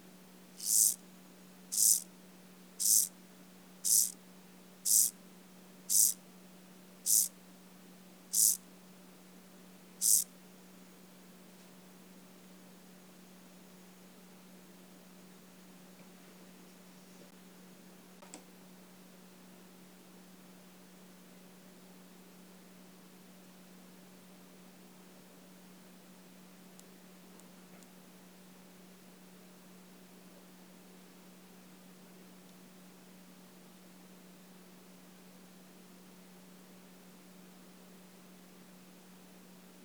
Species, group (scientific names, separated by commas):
Chorthippus brunneus, Orthoptera